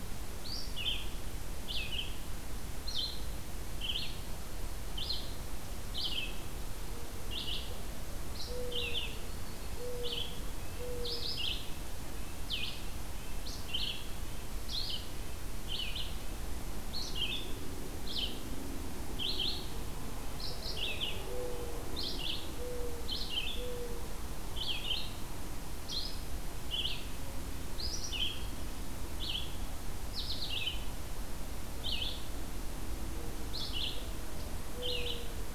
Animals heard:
Red-eyed Vireo (Vireo olivaceus), Red-breasted Nuthatch (Sitta canadensis), Yellow-rumped Warbler (Setophaga coronata), Mourning Dove (Zenaida macroura)

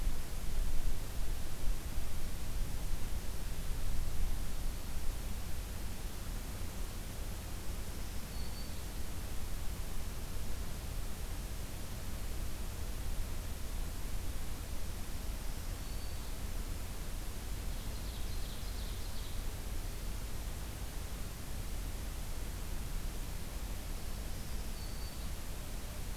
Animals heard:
Ovenbird (Seiurus aurocapilla), Black-throated Green Warbler (Setophaga virens)

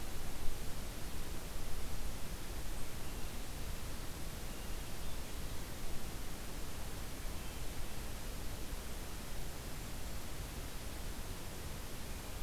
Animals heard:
Hermit Thrush (Catharus guttatus)

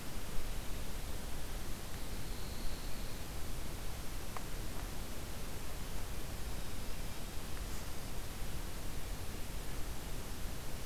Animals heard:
Pine Warbler (Setophaga pinus)

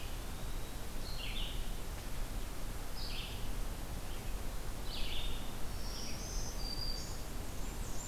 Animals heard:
Blackburnian Warbler (Setophaga fusca), Red-eyed Vireo (Vireo olivaceus), Eastern Wood-Pewee (Contopus virens), Black-throated Green Warbler (Setophaga virens)

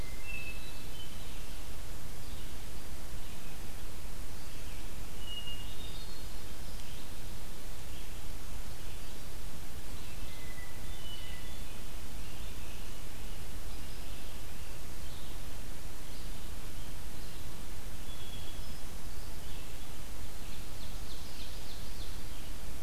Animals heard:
Hermit Thrush (Catharus guttatus), Ovenbird (Seiurus aurocapilla), Red-eyed Vireo (Vireo olivaceus)

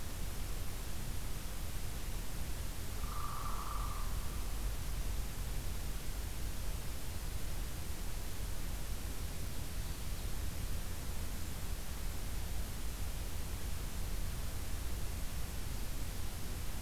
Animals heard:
Hairy Woodpecker (Dryobates villosus), Ovenbird (Seiurus aurocapilla)

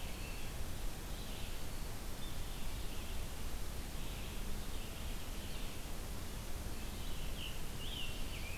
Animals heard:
Scarlet Tanager (Piranga olivacea), Red-eyed Vireo (Vireo olivaceus)

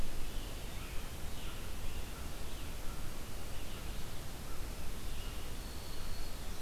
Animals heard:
American Crow (Corvus brachyrhynchos), American Robin (Turdus migratorius), Winter Wren (Troglodytes hiemalis), Red-eyed Vireo (Vireo olivaceus)

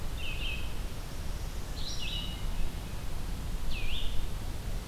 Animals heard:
Red-eyed Vireo (Vireo olivaceus)

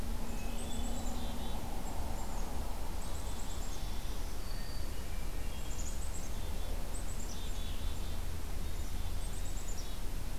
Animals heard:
Black-capped Chickadee (Poecile atricapillus), Hermit Thrush (Catharus guttatus), Black-throated Green Warbler (Setophaga virens)

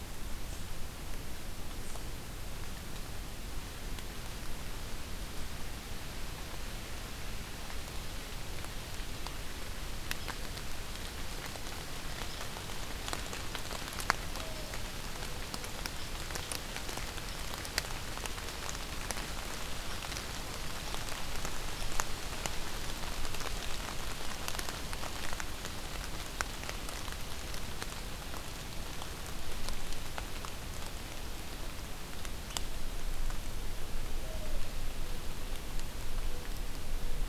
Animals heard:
Mourning Dove (Zenaida macroura)

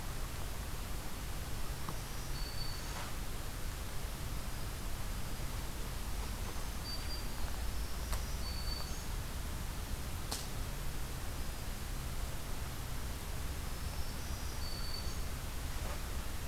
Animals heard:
Black-throated Green Warbler (Setophaga virens)

